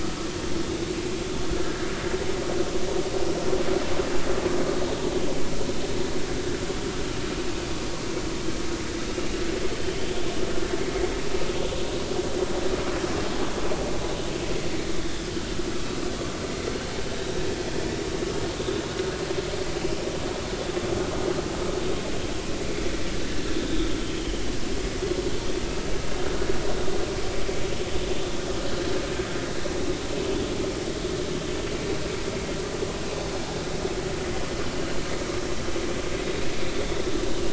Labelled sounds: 9.8	10.1	vessel noise, 3.0 to 3.1 kHz
24.1	24.4	vessel noise, 2.9 to 3.3 kHz

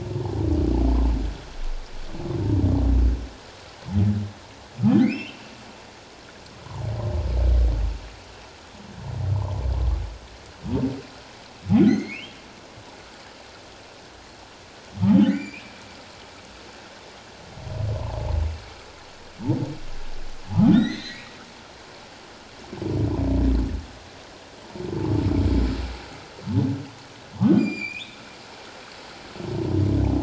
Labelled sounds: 5.0	5.4	humpback whale, 1.9 to 3.2 kHz
11.8	12.4	humpback whale, 1.4 to 6.5 kHz
15.2	15.7	humpback whale, 1.8 to 7.2 kHz
20.7	21.3	humpback whale, 1.7 to 6.4 kHz
27.5	28.2	humpback whale, 2.2 to 7.3 kHz

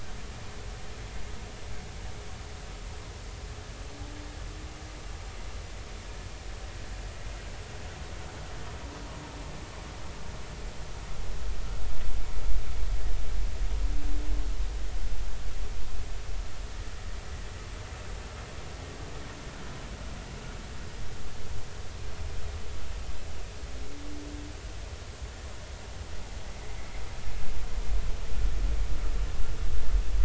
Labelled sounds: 26.8	27.0	vessel noise, 2.0 to 2.3 kHz

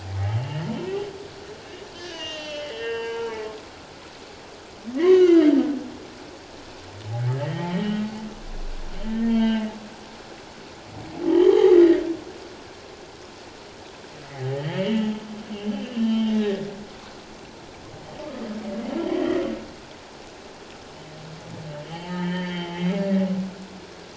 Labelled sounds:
0.4	0.7	humpback whale, 2.7 to 3.0 kHz
2.0	3.4	humpback whale, 0.84 to 6.3 kHz
5.0	5.5	humpback whale, 1.2 to 3.2 kHz
7.4	8.0	humpback whale, 1.8 to 3.4 kHz
8.9	9.7	humpback whale, 0.84 to 3.2 kHz
11.3	12.0	humpback whale, 0.78 to 3.3 kHz
14.2	15.0	humpback whale, 1.6 to 3.2 kHz
15.7	16.7	humpback whale, 1.8 to 3.2 kHz
19.1	19.4	humpback whale, 1.8 to 3.2 kHz
21.8	23.0	humpback whale, 0.78 to 3.4 kHz

